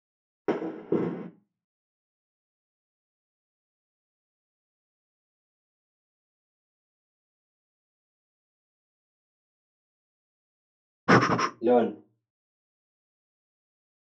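At 0.45 seconds, fireworks are heard. After that, at 11.07 seconds, breathing is audible. Following that, at 11.61 seconds, someone says "learn."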